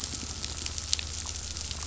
{"label": "anthrophony, boat engine", "recorder": "SoundTrap 500"}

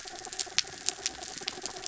{"label": "anthrophony, mechanical", "recorder": "SoundTrap 300"}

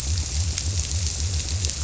{"label": "biophony", "recorder": "SoundTrap 300"}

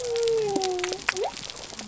{"label": "biophony", "recorder": "SoundTrap 300"}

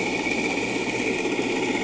{"label": "anthrophony, boat engine", "recorder": "HydroMoth"}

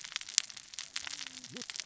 {"label": "biophony, cascading saw", "recorder": "SoundTrap 600 or HydroMoth"}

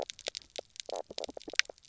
{"label": "biophony, knock croak", "recorder": "SoundTrap 300"}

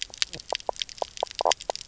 {"label": "biophony, knock croak", "recorder": "SoundTrap 300"}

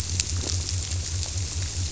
{"label": "biophony", "recorder": "SoundTrap 300"}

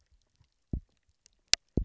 {"label": "biophony, double pulse", "recorder": "SoundTrap 300"}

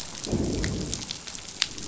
{"label": "biophony, growl", "recorder": "SoundTrap 500"}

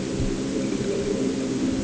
{"label": "anthrophony, boat engine", "recorder": "HydroMoth"}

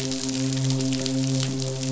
{"label": "biophony, midshipman", "recorder": "SoundTrap 500"}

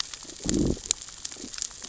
{"label": "biophony, growl", "recorder": "SoundTrap 600 or HydroMoth"}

